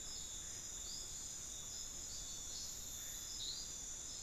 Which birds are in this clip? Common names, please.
Ferruginous Pygmy-Owl